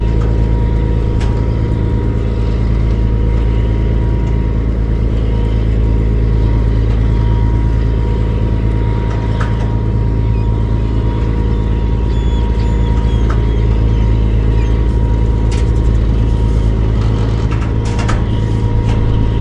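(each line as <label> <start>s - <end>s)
An engine runs continuously outdoors. 0.0s - 19.4s
Seagulls are calling in the distance. 13.1s - 15.7s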